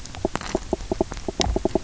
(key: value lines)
label: biophony, knock
recorder: SoundTrap 300